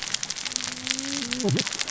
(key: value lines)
label: biophony, cascading saw
recorder: SoundTrap 600 or HydroMoth